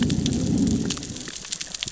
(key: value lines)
label: biophony, growl
recorder: SoundTrap 600 or HydroMoth